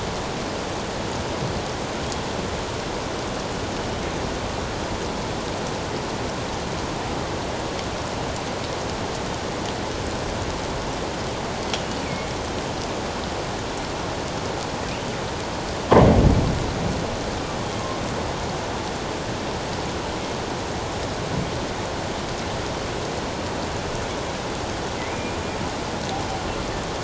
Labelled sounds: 12.0	12.3	killer whale, northern resident, G clan, call N23ii, 2.1 to 2.5 kHz
25.0	25.4	killer whale, northern resident, G clan, 1.9 to 2.5 kHz

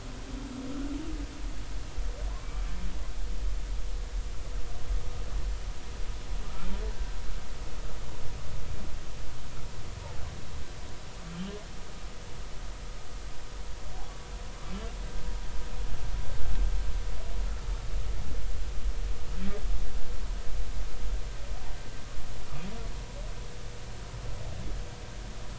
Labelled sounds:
2.3	2.6	humpback whale, 0.96 to 1.2 kHz
6.4	7.2	humpback whale, 1.2 to 1.6 kHz

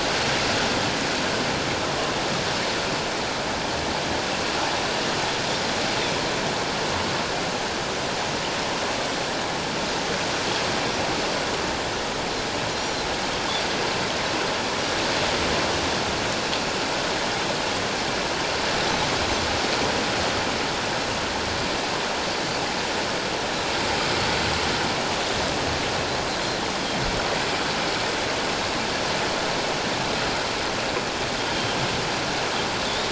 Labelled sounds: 31.5	31.8	Pacific white-sided dolphin, 3.1 to 3.2 kHz
32.8	33.1	Pacific white-sided dolphin, 3.3 to 3.8 kHz

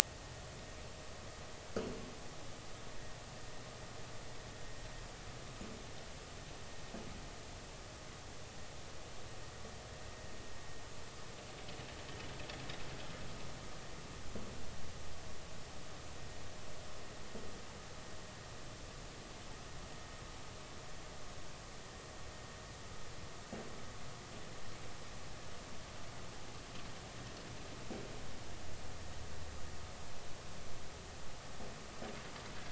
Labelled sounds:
0.0	0.3	vessel noise, 1.8 to 1.9 kHz

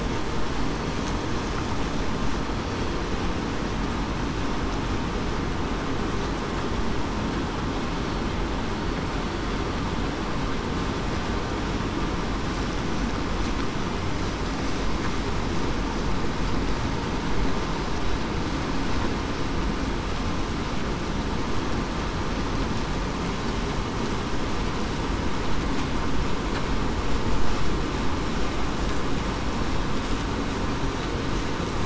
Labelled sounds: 0.5	0.9	killer whale, southern resident, 4.4 to 4.5 kHz

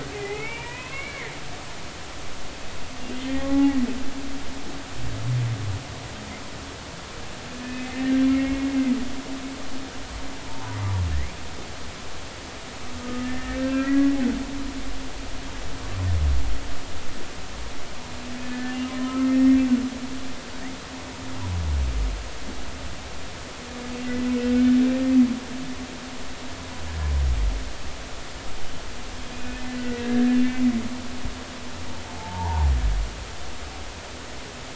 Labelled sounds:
0.1	1.3	humpback whale, 0.80 to 2.9 kHz
3.3	3.8	humpback whale, 0.80 to 2.0 kHz
7.6	8.7	humpback whale, 1.7 to 2.6 kHz
10.4	10.8	humpback whale, 0.80 to 1.0 kHz
13.0	14.2	humpback whale, 1.2 to 2.0 kHz
18.4	19.6	humpback whale, 1.2 to 2.0 kHz
29.3	30.6	humpback whale, 1.6 to 2.9 kHz
32.1	32.7	humpback whale, 0.80 to 1.0 kHz

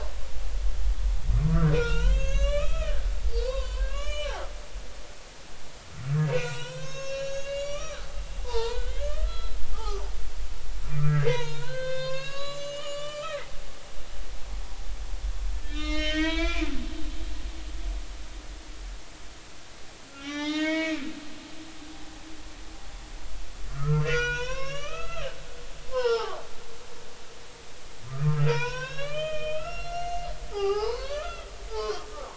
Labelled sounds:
1.4	3.1	humpback whale, 0.86 to 7.4 kHz
3.4	4.3	humpback whale, 0.90 to 6.0 kHz
6.3	10.0	humpback whale, 0.83 to 7.0 kHz
11.0	13.4	humpback whale, 0.86 to 7.5 kHz
15.6	16.7	humpback whale, 0.90 to 6.5 kHz
20.1	21.0	humpback whale, 0.86 to 6.0 kHz
23.7	26.4	humpback whale, 0.80 to 6.1 kHz
28.1	31.5	humpback whale, 0.80 to 6.4 kHz
31.8	32.3	humpback whale, 0.99 to 1.3 kHz

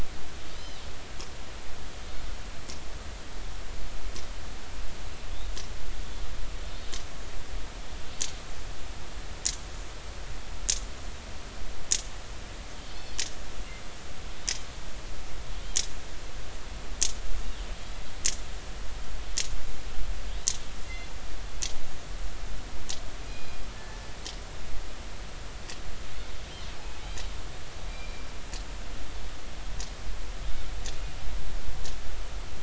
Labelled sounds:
20.8	21.1	killer whale, northern resident, G clan, call N24ii, 2.7 to 4.2 kHz
23.3	24.0	killer whale, northern resident, G clan, call N24ii, 1.7 to 5.0 kHz
27.0	27.3	killer whale, northern resident, 3.7 to 4.0 kHz
27.9	28.3	killer whale, northern resident, G clan, call N24ii, 2.3 to 2.5 kHz

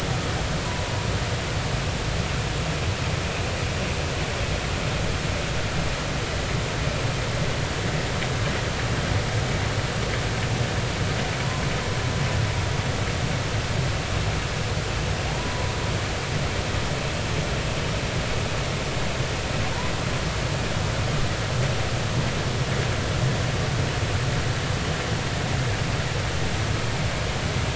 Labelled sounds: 15.3	15.7	humpback whale, 0.80 to 1.1 kHz

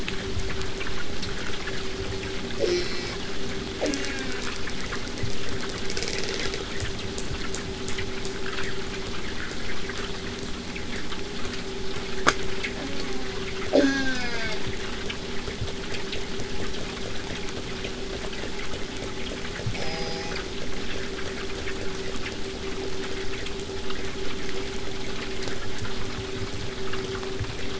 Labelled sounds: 2.6	3.2	killer whale, southern resident, J pod, call S04, 0.23 to 8.0 kHz
3.8	4.5	killer whale, southern resident, J pod, call S04, 0.15 to 7.5 kHz
12.8	13.4	killer whale, southern resident, J pod, call S04, 0.23 to 2.3 kHz
13.7	14.6	killer whale, southern resident, J pod, call S04, 0.15 to 7.2 kHz
19.8	20.4	killer whale, southern resident, J pod, call S04, 0.19 to 8.0 kHz

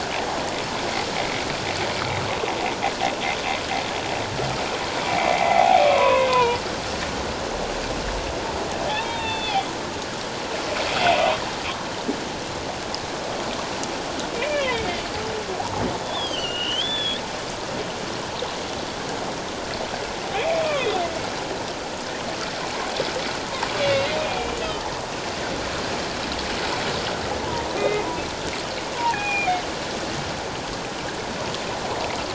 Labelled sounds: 5.3	6.6	humpback whale, 0.78 to 2.5 kHz
8.9	9.7	humpback whale, 0.78 to 4.5 kHz
14.3	14.9	humpback whale, 1.8 to 3.1 kHz
16.0	17.2	humpback whale, 1.3 to 3.8 kHz
20.3	21.0	humpback whale, 1.9 to 2.6 kHz
23.8	24.5	humpback whale, 2.1 to 2.9 kHz
27.8	28.1	humpback whale, 1.2 to 2.6 kHz
28.9	29.6	humpback whale, 0.78 to 2.5 kHz

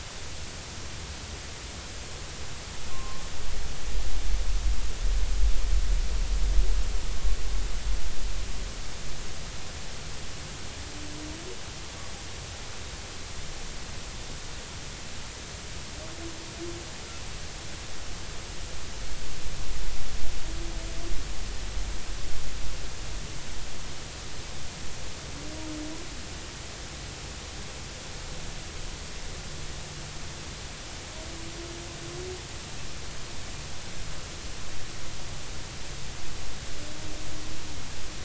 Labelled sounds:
2.9	3.2	humpback whale, 0.99 to 1.1 kHz

